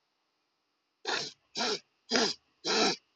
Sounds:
Sniff